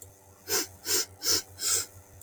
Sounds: Sniff